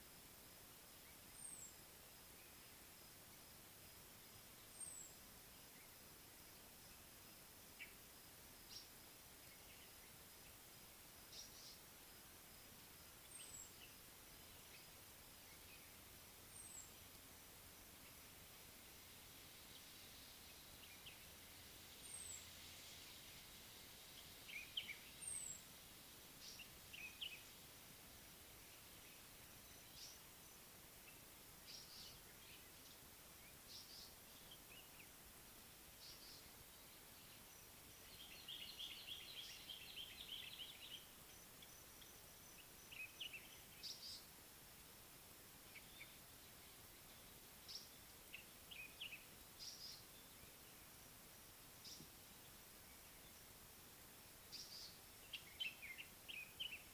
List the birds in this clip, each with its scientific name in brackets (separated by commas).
White-bellied Go-away-bird (Corythaixoides leucogaster), Common Bulbul (Pycnonotus barbatus), African Paradise-Flycatcher (Terpsiphone viridis)